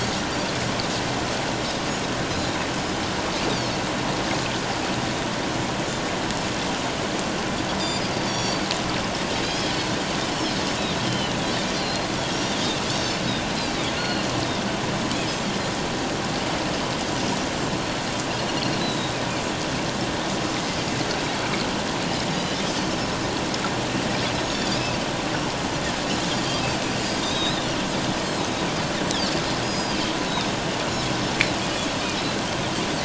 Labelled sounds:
8.2	8.6	Pacific white-sided dolphin, 3.3 to 6.9 kHz
9.4	10.0	Pacific white-sided dolphin, 3.2 to 4.5 kHz
11.0	12.6	Pacific white-sided dolphin, 2.8 to 5.8 kHz
14.0	14.3	Pacific white-sided dolphin, 4.1 to 4.4 kHz
18.8	19.2	Pacific white-sided dolphin, 3.7 to 4.1 kHz
26.4	27.6	Pacific white-sided dolphin, 3.4 to 5.2 kHz
29.1	30.0	Pacific white-sided dolphin, 4.5 to 6.7 kHz

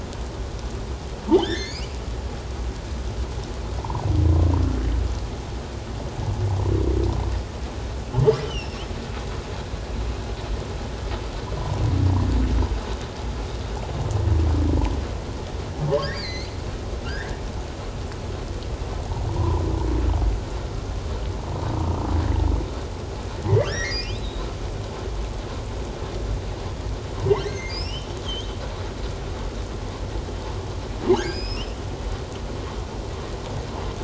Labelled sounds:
1.3	1.9	humpback whale, 1.5 to 5.2 kHz
3.8	4.0	humpback whale, 0.78 to 1.1 kHz
8.4	8.9	humpback whale, 2.6 to 5.8 kHz
16.0	16.5	humpback whale, 1.6 to 5.1 kHz
17.0	17.4	humpback whale, 1.3 to 2.1 kHz
19.4	19.6	humpback whale, 0.84 to 1.1 kHz
23.6	24.5	humpback whale, 1.5 to 5.8 kHz
27.4	28.6	humpback whale, 1.8 to 6.5 kHz
31.1	31.7	humpback whale, 1.5 to 5.4 kHz

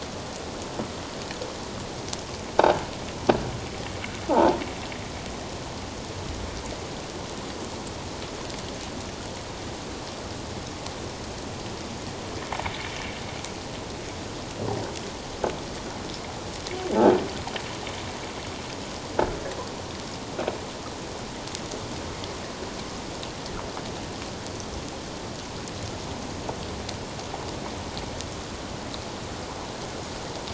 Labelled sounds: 4.3	4.6	croaking sound likely from a nearby submerged object, 0.78 to 1.1 kHz

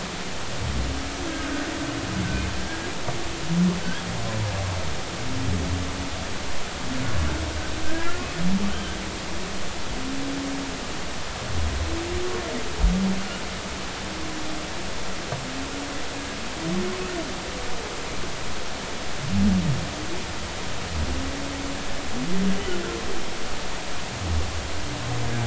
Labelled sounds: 1.3	1.5	humpback whale, 1.4 to 1.7 kHz
7.9	8.2	humpback whale, 1.3 to 1.9 kHz

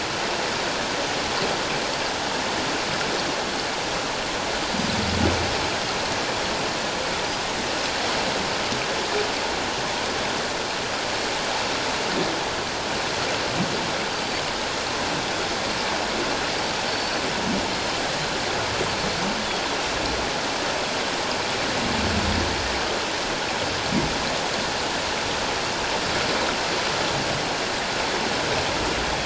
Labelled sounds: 16.9	17.2	Pacific white-sided dolphin, 4.3 to 4.6 kHz

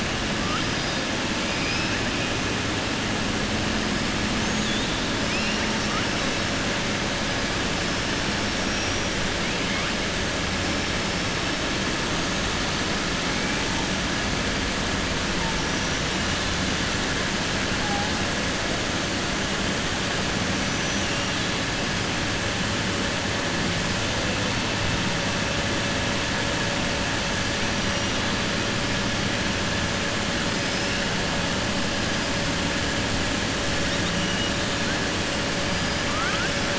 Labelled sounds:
1.5	1.9	killer whale, southern resident, 4.8 to 5.5 kHz
4.3	4.7	killer whale, southern resident, 6.1 to 7.4 kHz
5.2	5.6	killer whale, southern resident, 2.2 to 2.9 kHz
8.5	9.0	killer whale, southern resident, 5.1 to 5.8 kHz
36.0	36.5	killer whale, southern resident, 1.1 to 2.4 kHz

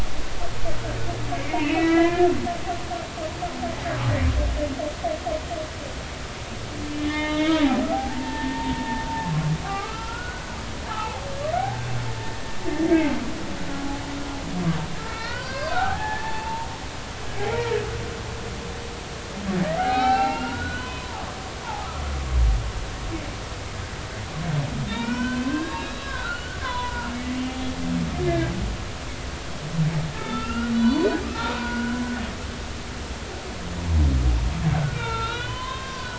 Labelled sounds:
1.5	2.7	humpback whale, 0.96 to 4.0 kHz
7.0	9.0	humpback whale, 0.80 to 3.6 kHz
9.6	10.6	humpback whale, 1.1 to 1.6 kHz
10.9	11.9	humpback whale, 0.80 to 1.6 kHz
15.0	16.7	humpback whale, 0.80 to 4.8 kHz
17.5	17.8	humpback whale, 0.90 to 2.4 kHz
19.7	21.2	humpback whale, 0.80 to 4.5 kHz
21.6	21.9	humpback whale, 0.80 to 1.1 kHz
24.9	27.1	humpback whale, 0.90 to 3.9 kHz
28.3	28.7	humpback whale, 1.6 to 3.4 kHz
30.1	32.0	humpback whale, 0.90 to 4.6 kHz
34.7	36.1	humpback whale, 0.86 to 4.8 kHz

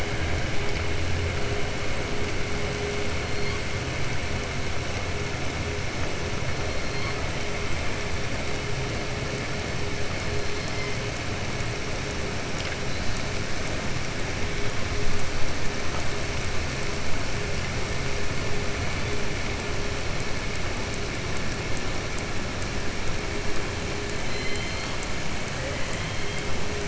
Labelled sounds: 24.2	25.0	killer whale, southern resident, 2.0 to 4.6 kHz
25.5	26.4	killer whale, southern resident, 1.1 to 3.3 kHz

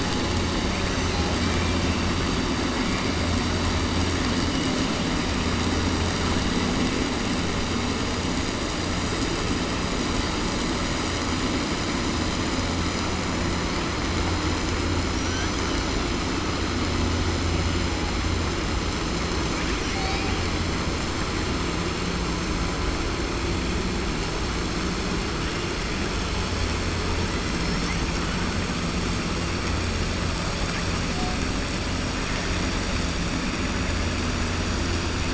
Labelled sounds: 15.0	15.7	killer whale, southern resident, 5.5 to 6.9 kHz

